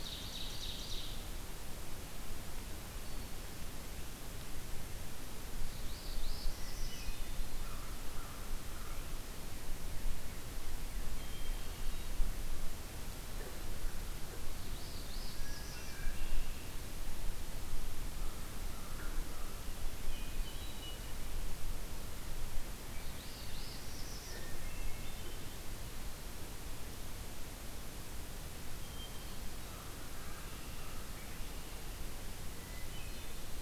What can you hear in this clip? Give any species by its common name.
Ovenbird, Hermit Thrush, Northern Parula, American Crow, Red-winged Blackbird